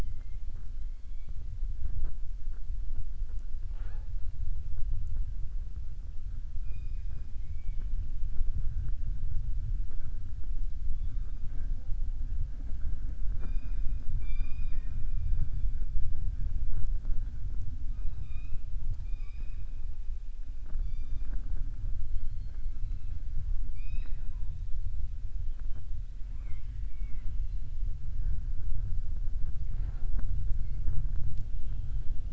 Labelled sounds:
14.1	15.0	killer whale, southern resident, 0.69 to 5.0 kHz
18.0	18.6	killer whale, southern resident, 0.77 to 4.9 kHz
23.6	24.5	killer whale, southern resident, 0.37 to 5.7 kHz
26.3	27.3	killer whale, southern resident, 0.59 to 3.7 kHz

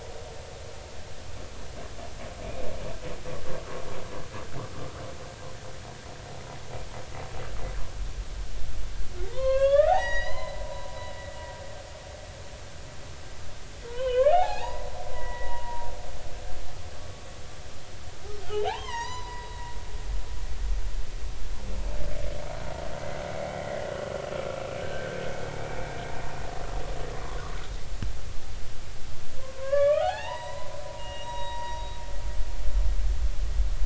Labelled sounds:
9.2	10.9	humpback whale, 0.80 to 6.8 kHz
13.9	14.9	humpback whale, 0.80 to 3.3 kHz
15.1	15.9	humpback whale, 0.90 to 2.0 kHz
18.4	19.5	humpback whale, 0.80 to 6.2 kHz
23.6	23.8	humpback whale, 1.8 to 2.1 kHz
24.8	25.2	humpback whale, 1.4 to 1.8 kHz
29.4	31.8	humpback whale, 0.80 to 5.8 kHz

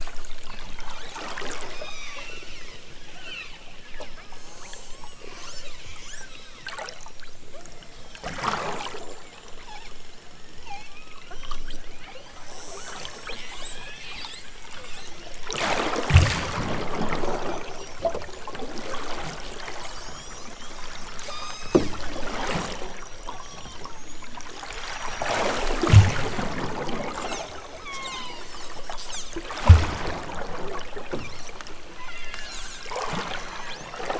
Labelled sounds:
1.7	2.8	killer whale, southern Alaska resident, 0.69 to 6.4 kHz
3.1	3.6	killer whale, southern Alaska resident, 0.69 to 6.1 kHz
3.9	5.8	killer whale, southern Alaska resident, 0.83 to 8.0 kHz
6.3	6.7	killer whale, southern Alaska resident, 1.2 to 6.0 kHz
7.5	8.3	killer whale, southern Alaska resident, 2.6 to 7.8 kHz
9.6	10.0	killer whale, southern Alaska resident, 0.55 to 5.1 kHz
10.4	11.0	killer whale, southern Alaska resident, 0.55 to 8.0 kHz
11.8	12.4	killer whale, southern Alaska resident, 1.3 to 5.7 kHz
13.0	15.2	killer whale, southern Alaska resident, 0.55 to 8.0 kHz
19.7	20.5	killer whale, southern Alaska resident, 2.6 to 8.0 kHz
21.2	21.9	killer whale, southern Alaska resident, 0.83 to 8.0 kHz
23.2	24.1	killer whale, southern Alaska resident, 0.55 to 6.0 kHz
27.7	28.5	killer whale, southern Alaska resident, 0.42 to 3.9 kHz
31.9	32.5	killer whale, southern Alaska resident, 1.3 to 3.6 kHz
33.4	33.9	killer whale, southern Alaska resident, 0.65 to 3.1 kHz

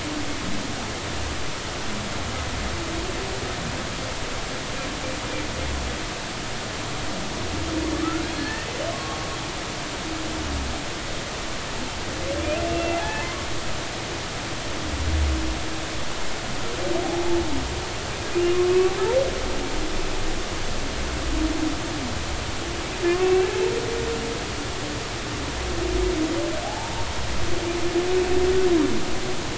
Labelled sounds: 8.3	9.2	humpback whale, 1.0 to 1.9 kHz
12.7	13.5	humpback whale, 0.80 to 2.8 kHz
23.1	23.5	humpback whale, 0.99 to 2.8 kHz
26.7	27.0	humpback whale, 0.80 to 0.96 kHz

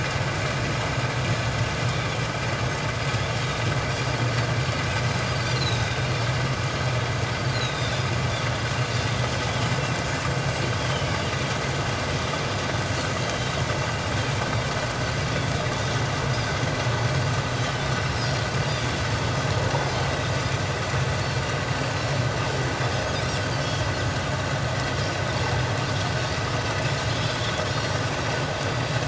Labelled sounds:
5.5	6.1	Pacific white-sided dolphin, 3.6 to 6.9 kHz
7.5	8.1	Pacific white-sided dolphin, 3.3 to 4.3 kHz
8.9	9.3	Pacific white-sided dolphin, 3.5 to 3.7 kHz
10.9	11.2	Pacific white-sided dolphin, 2.8 to 3.2 kHz
13.2	13.6	Pacific white-sided dolphin, 3.1 to 3.9 kHz
15.3	15.5	Pacific white-sided dolphin, 3.3 to 3.6 kHz
17.6	19.0	Pacific white-sided dolphin, 2.9 to 5.7 kHz
23.5	23.8	Pacific white-sided dolphin, 2.9 to 3.2 kHz

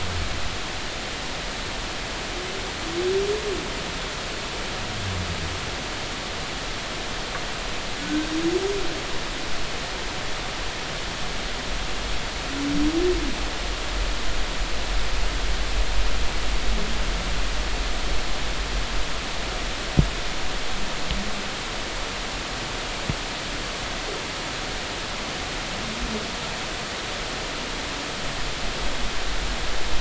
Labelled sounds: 8.0	8.3	humpback whale, 1.4 to 1.6 kHz

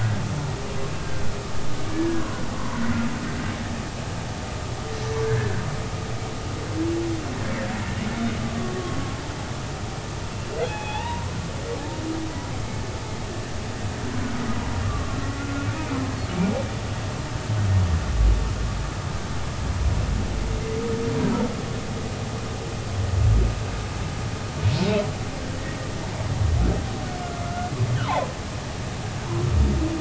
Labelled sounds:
1.0	1.3	humpback whale, 1.5 to 1.6 kHz
1.9	2.8	humpback whale, 0.93 to 1.8 kHz
8.4	8.8	humpback whale, 1.1 to 1.2 kHz
10.6	11.3	humpback whale, 0.80 to 2.9 kHz
14.8	15.7	humpback whale, 1.1 to 1.5 kHz
27.4	27.7	humpback whale, 1.3 to 1.5 kHz
28.0	28.3	humpback whale, 0.80 to 1.1 kHz

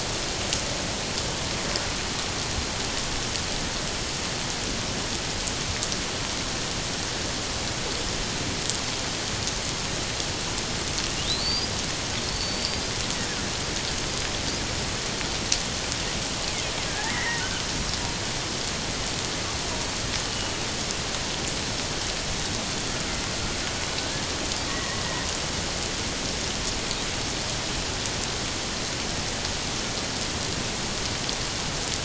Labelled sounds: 11.4	11.7	killer whale, 4.4 to 5.0 kHz
12.2	12.9	killer whale, 4.2 to 5.0 kHz
16.9	17.4	killer whale, 1.6 to 2.2 kHz
24.7	25.0	killer whale, 1.8 to 2.0 kHz

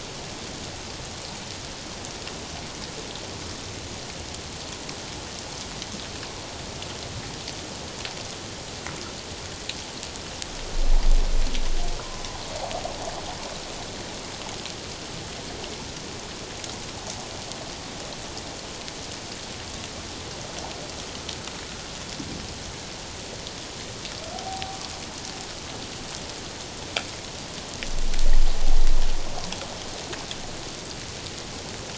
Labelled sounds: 12.0	12.2	humpback whale, 0.94 to 1.1 kHz
24.3	24.8	humpback whale, 0.78 to 0.84 kHz

